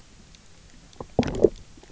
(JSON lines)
{"label": "biophony, low growl", "recorder": "SoundTrap 300"}